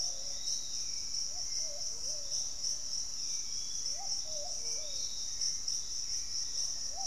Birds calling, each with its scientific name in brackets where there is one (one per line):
Hauxwell's Thrush (Turdus hauxwelli)
Piratic Flycatcher (Legatus leucophaius)
Black-faced Antthrush (Formicarius analis)
Thrush-like Wren (Campylorhynchus turdinus)